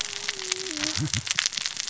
{"label": "biophony, cascading saw", "recorder": "SoundTrap 600 or HydroMoth"}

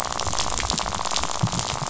{"label": "biophony, rattle", "recorder": "SoundTrap 500"}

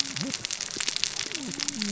{"label": "biophony, cascading saw", "recorder": "SoundTrap 600 or HydroMoth"}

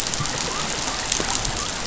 {"label": "biophony", "recorder": "SoundTrap 500"}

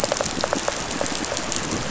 {"label": "biophony, pulse", "recorder": "SoundTrap 500"}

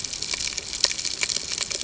{"label": "ambient", "recorder": "HydroMoth"}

